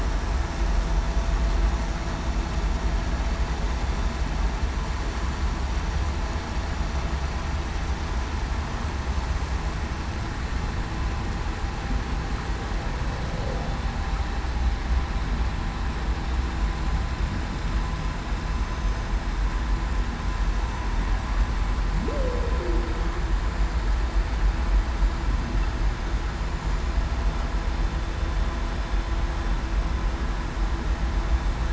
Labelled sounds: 22.0	22.5	humpback whale, 0.26 to 0.61 kHz

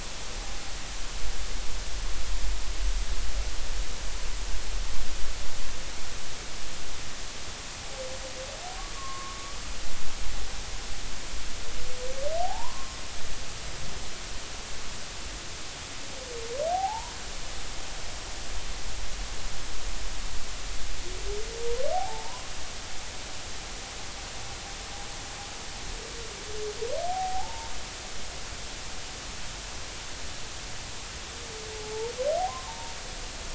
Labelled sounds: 8.9	9.4	humpback whale, 1.0 to 1.2 kHz
12.4	13.0	humpback whale, 0.80 to 1.1 kHz
16.7	17.1	humpback whale, 0.80 to 1.1 kHz
21.9	22.5	humpback whale, 0.80 to 1.1 kHz
27.1	27.7	humpback whale, 0.80 to 0.96 kHz
31.8	32.9	humpback whale, 0.83 to 0.99 kHz

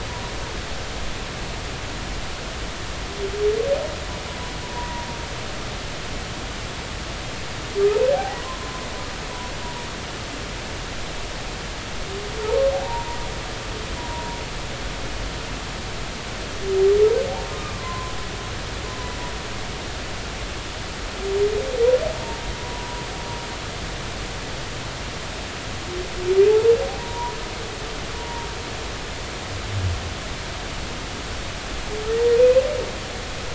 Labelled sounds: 4.7	5.1	humpback whale, 0.86 to 1.0 kHz
8.1	8.9	humpback whale, 0.80 to 1.2 kHz
12.8	13.2	humpback whale, 0.86 to 0.99 kHz
14.0	14.4	humpback whale, 0.90 to 1.0 kHz
17.5	18.1	humpback whale, 0.96 to 1.3 kHz
22.6	23.0	humpback whale, 0.93 to 1.0 kHz
27.0	28.5	humpback whale, 0.90 to 1.0 kHz

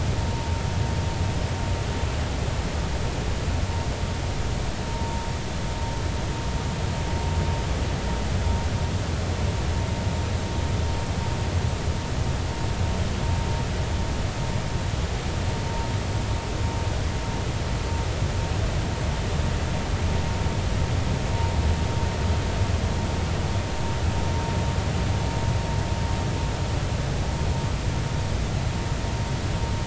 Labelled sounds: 4.9	5.2	vessel noise, 0.90 to 0.99 kHz

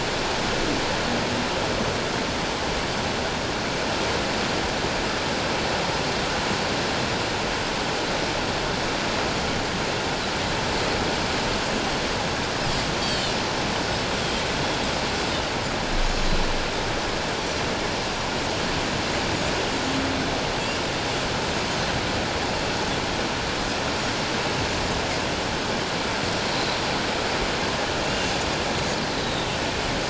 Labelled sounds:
13.0	13.4	Pacific white-sided dolphin, 2.8 to 7.9 kHz
28.1	28.3	Pacific white-sided dolphin, 2.6 to 2.9 kHz

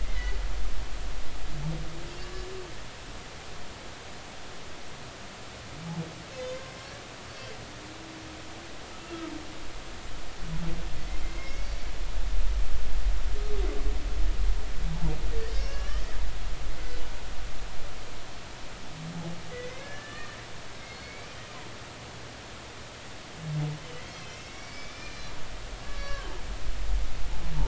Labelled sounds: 0.0	0.4	humpback whale, 1.9 to 2.2 kHz
6.4	7.0	humpback whale, 0.99 to 5.7 kHz
11.2	11.9	humpback whale, 2.0 to 5.6 kHz
15.5	16.1	humpback whale, 1.1 to 6.2 kHz
19.5	20.4	humpback whale, 1.1 to 2.4 kHz
20.9	21.4	humpback whale, 2.1 to 4.8 kHz
24.0	26.3	humpback whale, 1.5 to 6.0 kHz

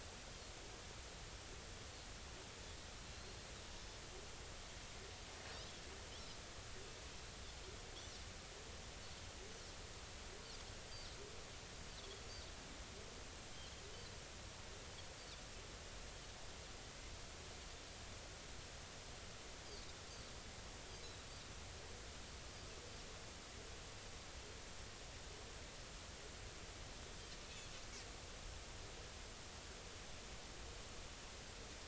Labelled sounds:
3.1	3.5	Pacific white-sided dolphin, 4.1 to 4.4 kHz

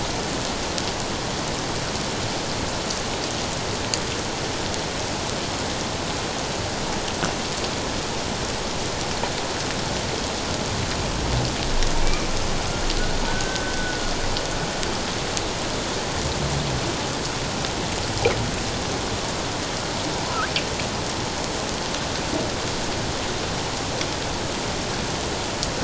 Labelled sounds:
12.0	12.3	humpback whale, 2.2 to 2.5 kHz
13.3	14.0	humpback whale, 1.4 to 1.6 kHz

